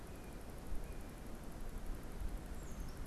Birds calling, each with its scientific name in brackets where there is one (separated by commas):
unidentified bird